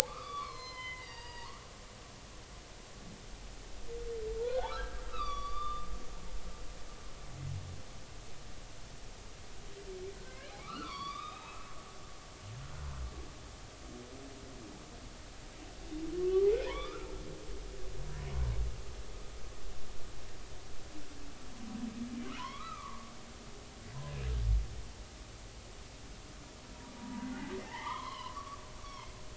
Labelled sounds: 0.1	1.6	humpback whale, 0.86 to 5.3 kHz
4.4	6.9	humpback whale, 1.1 to 5.9 kHz
10.3	11.6	humpback whale, 0.93 to 4.8 kHz
16.2	17.1	humpback whale, 0.90 to 3.6 kHz
22.3	23.1	humpback whale, 0.90 to 3.5 kHz
27.0	29.1	humpback whale, 0.80 to 3.4 kHz

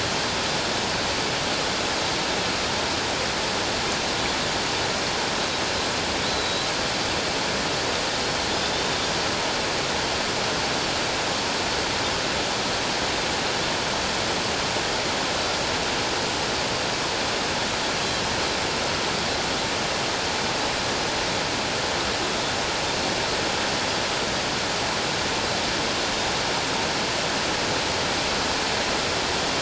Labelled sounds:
6.3	6.7	Pacific white-sided dolphin, 3.8 to 4.2 kHz
8.6	9.0	Pacific white-sided dolphin, 3.5 to 3.8 kHz

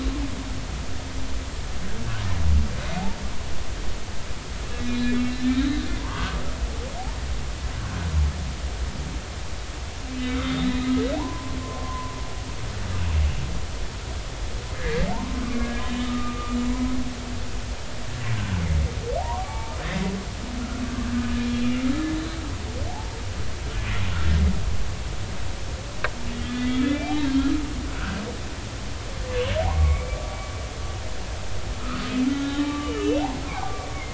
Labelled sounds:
4.8	6.4	humpback whale, 0.86 to 4.1 kHz
10.1	12.1	humpback whale, 0.80 to 3.8 kHz
14.8	16.6	humpback whale, 0.86 to 3.8 kHz
18.4	18.6	humpback whale, 1.4 to 1.6 kHz
19.2	20.1	humpback whale, 0.80 to 2.4 kHz
22.9	23.2	humpback whale, 0.80 to 0.99 kHz
26.4	27.2	humpback whale, 1.2 to 3.6 kHz
28.0	28.2	humpback whale, 1.2 to 1.6 kHz
29.6	30.2	humpback whale, 0.80 to 2.4 kHz
31.8	33.9	humpback whale, 1.1 to 3.0 kHz

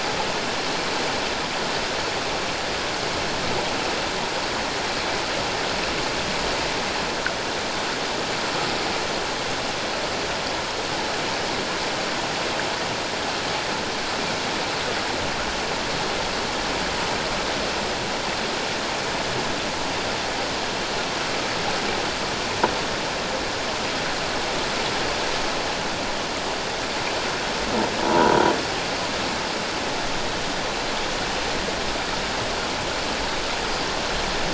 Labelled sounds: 28.0	28.4	croaking sound likely from a nearby submerged object, 0.84 to 1.0 kHz
33.6	33.9	croaking sound likely from a nearby submerged object, 4.7 to 5.0 kHz

